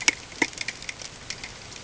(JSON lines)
{"label": "ambient", "recorder": "HydroMoth"}